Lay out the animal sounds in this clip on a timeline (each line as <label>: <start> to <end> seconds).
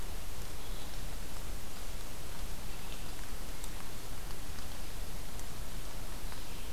Red-eyed Vireo (Vireo olivaceus): 0.0 to 6.7 seconds